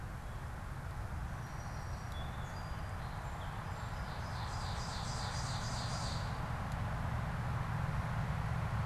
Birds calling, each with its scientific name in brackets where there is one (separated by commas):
Ovenbird (Seiurus aurocapilla), Song Sparrow (Melospiza melodia)